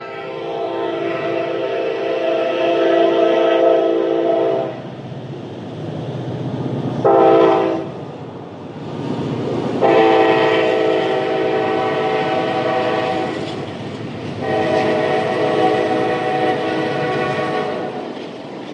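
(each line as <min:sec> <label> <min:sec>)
0:00.0 A train horn is blowing as it approaches. 0:04.8
0:00.0 A train approaches. 0:18.7
0:07.0 A train horn sounds. 0:07.9
0:09.8 A train horn sounds. 0:13.6
0:14.4 A train horn sounds. 0:18.2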